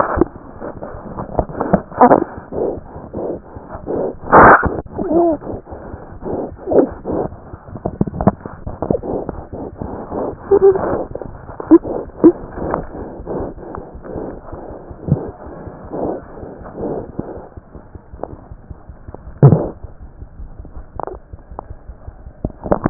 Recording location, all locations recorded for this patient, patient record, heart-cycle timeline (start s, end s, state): aortic valve (AV)
aortic valve (AV)+pulmonary valve (PV)+tricuspid valve (TV)+mitral valve (MV)
#Age: Infant
#Sex: Male
#Height: 60.0 cm
#Weight: 8.85 kg
#Pregnancy status: False
#Murmur: Absent
#Murmur locations: nan
#Most audible location: nan
#Systolic murmur timing: nan
#Systolic murmur shape: nan
#Systolic murmur grading: nan
#Systolic murmur pitch: nan
#Systolic murmur quality: nan
#Diastolic murmur timing: nan
#Diastolic murmur shape: nan
#Diastolic murmur grading: nan
#Diastolic murmur pitch: nan
#Diastolic murmur quality: nan
#Outcome: Normal
#Campaign: 2015 screening campaign
0.00	17.35	unannotated
17.35	17.44	S1
17.44	17.55	systole
17.55	17.61	S2
17.61	17.73	diastole
17.73	17.81	S1
17.81	17.92	systole
17.92	17.99	S2
17.99	18.10	diastole
18.10	18.17	S1
18.17	18.31	systole
18.31	18.36	S2
18.36	18.50	diastole
18.50	18.57	S1
18.57	18.68	systole
18.68	18.74	S2
18.74	18.87	diastole
18.87	18.94	S1
18.94	19.06	systole
19.06	19.12	S2
19.12	19.24	diastole
19.24	19.32	S1
19.32	19.82	unannotated
19.82	19.87	S2
19.87	19.98	diastole
19.98	20.08	S1
20.08	20.19	systole
20.19	20.25	S2
20.25	20.36	diastole
20.36	20.46	S1
20.46	20.56	systole
20.56	20.63	S2
20.63	20.73	diastole
20.73	20.83	S1
20.83	20.93	systole
20.93	21.00	S2
21.00	21.12	diastole
21.12	21.19	S1
21.19	21.31	systole
21.31	21.36	S2
21.36	21.48	diastole
21.48	21.56	S1
21.56	21.67	systole
21.67	21.75	S2
21.75	21.85	diastole
21.85	21.94	S1
21.94	22.05	systole
22.05	22.12	S2
22.12	22.24	diastole
22.24	22.33	S1
22.33	22.90	unannotated